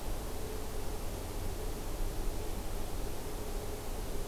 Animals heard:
forest ambience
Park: Acadia National Park